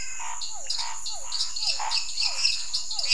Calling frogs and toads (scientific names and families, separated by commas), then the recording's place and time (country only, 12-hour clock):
Dendropsophus minutus (Hylidae), Dendropsophus nanus (Hylidae), Physalaemus cuvieri (Leptodactylidae), Scinax fuscovarius (Hylidae)
Brazil, 9:30pm